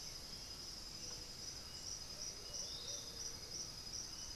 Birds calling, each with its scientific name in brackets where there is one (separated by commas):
Black-billed Thrush (Turdus ignobilis), Thrush-like Wren (Campylorhynchus turdinus), Bluish-fronted Jacamar (Galbula cyanescens), Plumbeous Pigeon (Patagioenas plumbea), Piratic Flycatcher (Legatus leucophaius)